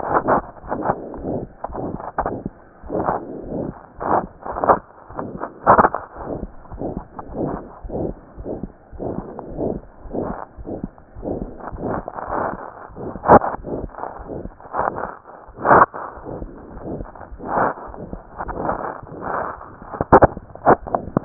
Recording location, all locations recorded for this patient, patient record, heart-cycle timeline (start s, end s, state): aortic valve (AV)
aortic valve (AV)+pulmonary valve (PV)+tricuspid valve (TV)+mitral valve (MV)
#Age: Child
#Sex: Female
#Height: 96.0 cm
#Weight: 16.0 kg
#Pregnancy status: False
#Murmur: Present
#Murmur locations: aortic valve (AV)+mitral valve (MV)+pulmonary valve (PV)+tricuspid valve (TV)
#Most audible location: aortic valve (AV)
#Systolic murmur timing: Mid-systolic
#Systolic murmur shape: Diamond
#Systolic murmur grading: III/VI or higher
#Systolic murmur pitch: Medium
#Systolic murmur quality: Harsh
#Diastolic murmur timing: nan
#Diastolic murmur shape: nan
#Diastolic murmur grading: nan
#Diastolic murmur pitch: nan
#Diastolic murmur quality: nan
#Outcome: Abnormal
#Campaign: 2015 screening campaign
0.00	1.00	unannotated
1.00	1.15	diastole
1.15	1.24	S1
1.24	1.40	systole
1.40	1.47	S2
1.47	1.68	diastole
1.68	1.76	S1
1.76	1.92	systole
1.92	1.98	S2
1.98	2.20	diastole
2.20	2.27	S1
2.27	2.43	systole
2.43	2.49	S2
2.49	2.81	diastole
2.81	2.90	S1
2.90	3.13	systole
3.13	3.19	S2
3.19	3.43	diastole
3.43	3.53	S1
3.53	3.66	systole
3.66	3.73	S2
3.73	3.96	diastole
3.96	4.04	S1
4.04	4.20	systole
4.20	4.28	S2
4.28	4.50	diastole
4.50	4.60	S1
4.60	4.74	systole
4.74	4.81	S2
4.81	5.10	diastole
5.10	5.20	S1
5.20	5.33	systole
5.33	5.39	S2
5.39	6.15	unannotated
6.15	6.24	S1
6.24	6.41	systole
6.41	6.47	S2
6.47	6.70	diastole
6.70	6.79	S1
6.79	6.94	systole
6.94	7.03	S2
7.03	7.26	diastole
7.26	7.35	S1
7.35	7.51	systole
7.51	7.58	S2
7.58	7.82	diastole
7.82	7.89	S1
7.89	8.07	systole
8.07	8.15	S2
8.15	8.36	diastole
8.36	8.45	S1
8.45	8.60	systole
8.60	8.68	S2
8.68	8.90	diastole
8.90	9.01	S1
9.01	9.16	systole
9.16	9.22	S2
9.22	9.49	diastole
9.49	9.57	S1
9.57	9.74	systole
9.74	9.80	S2
9.80	10.03	diastole
10.03	10.11	S1
10.11	10.29	systole
10.29	10.36	S2
10.36	10.56	diastole
10.56	10.66	S1
10.66	10.82	systole
10.82	10.89	S2
10.89	11.19	diastole
11.19	21.25	unannotated